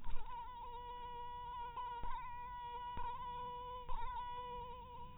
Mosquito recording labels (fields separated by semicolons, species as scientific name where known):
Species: mosquito; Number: one; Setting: cup